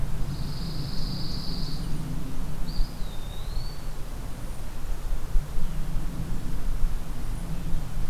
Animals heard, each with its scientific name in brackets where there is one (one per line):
Eastern Wood-Pewee (Contopus virens)
Golden-crowned Kinglet (Regulus satrapa)
Pine Warbler (Setophaga pinus)